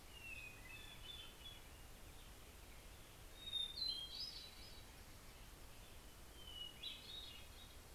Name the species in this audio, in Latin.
Catharus guttatus, Turdus migratorius, Corvus corax